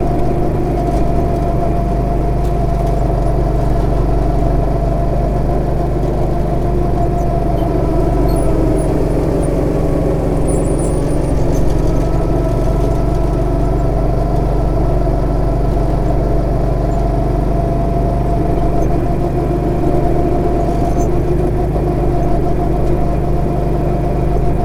Can any animals be heard?
no